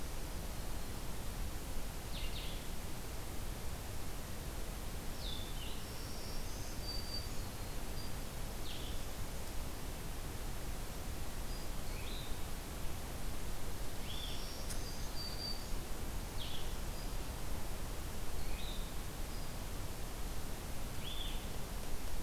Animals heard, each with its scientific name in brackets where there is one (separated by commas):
Black-throated Green Warbler (Setophaga virens), Blue-headed Vireo (Vireo solitarius)